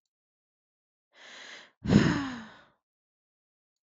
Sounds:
Sigh